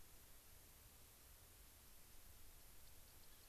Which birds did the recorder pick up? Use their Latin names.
Leucosticte tephrocotis